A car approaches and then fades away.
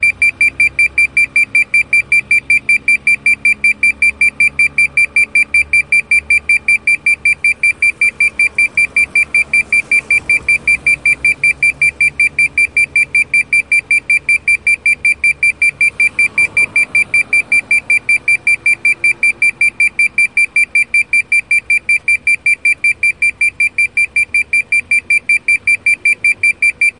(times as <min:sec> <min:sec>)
0:09.4 0:12.8, 0:14.8 0:19.2